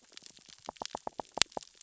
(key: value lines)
label: biophony, knock
recorder: SoundTrap 600 or HydroMoth